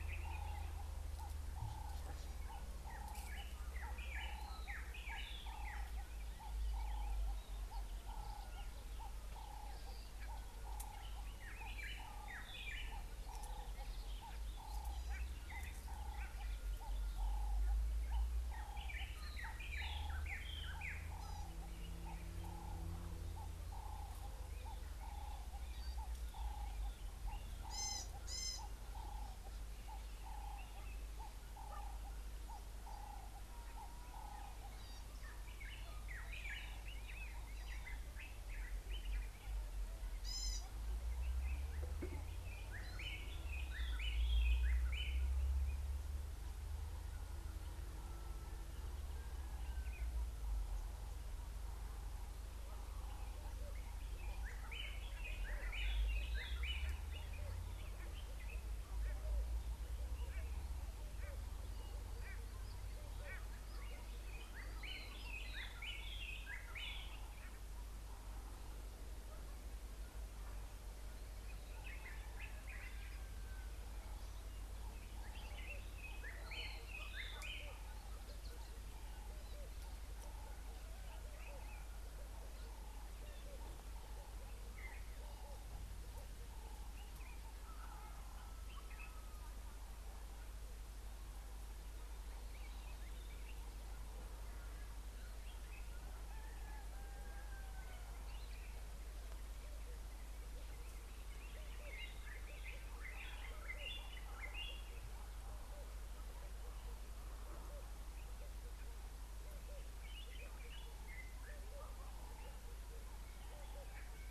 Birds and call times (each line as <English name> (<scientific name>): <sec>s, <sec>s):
Ring-necked Dove (Streptopelia capicola): 3.0s, 17.4s
White-browed Robin-Chat (Cossypha heuglini): 4.7s, 11.8s, 19.7s, 36.4s, 44.1s, 55.9s, 65.8s, 76.6s, 103.8s
Gray-backed Camaroptera (Camaroptera brevicaudata): 27.8s, 40.3s
White-bellied Go-away-bird (Corythaixoides leucogaster): 62.3s
Common Bulbul (Pycnonotus barbatus): 110.2s